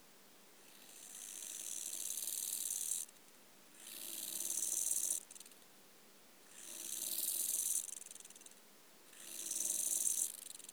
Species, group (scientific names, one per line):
Chorthippus eisentrauti
Orthoptera